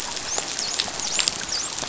{"label": "biophony, dolphin", "recorder": "SoundTrap 500"}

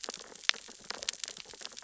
{"label": "biophony, sea urchins (Echinidae)", "recorder": "SoundTrap 600 or HydroMoth"}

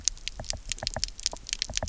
{"label": "biophony, knock", "recorder": "SoundTrap 300"}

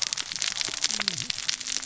{"label": "biophony, cascading saw", "recorder": "SoundTrap 600 or HydroMoth"}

